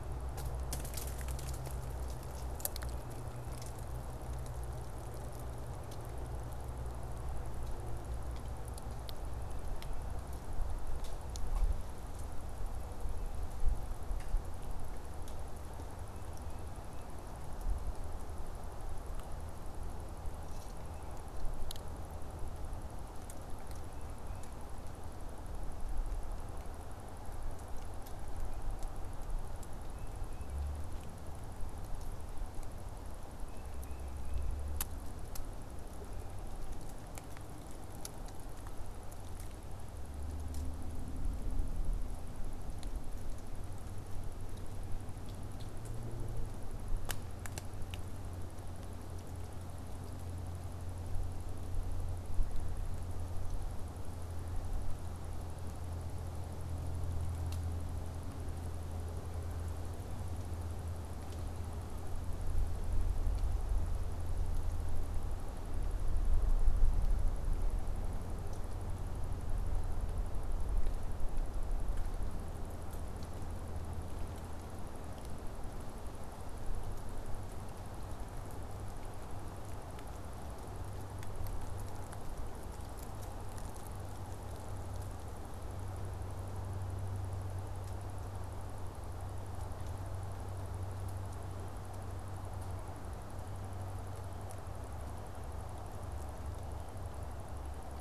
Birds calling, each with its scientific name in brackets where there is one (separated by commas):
Tufted Titmouse (Baeolophus bicolor)